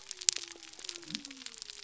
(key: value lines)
label: biophony
recorder: SoundTrap 300